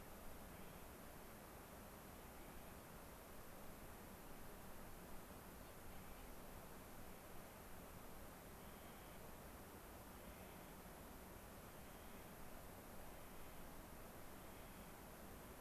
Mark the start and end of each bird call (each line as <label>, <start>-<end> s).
Clark's Nutcracker (Nucifraga columbiana), 0.5-0.9 s
Clark's Nutcracker (Nucifraga columbiana), 2.3-2.8 s
Clark's Nutcracker (Nucifraga columbiana), 5.8-6.3 s
Clark's Nutcracker (Nucifraga columbiana), 8.6-9.2 s
Clark's Nutcracker (Nucifraga columbiana), 10.1-10.8 s
Clark's Nutcracker (Nucifraga columbiana), 11.5-12.3 s
Clark's Nutcracker (Nucifraga columbiana), 12.9-13.7 s
Clark's Nutcracker (Nucifraga columbiana), 14.4-15.0 s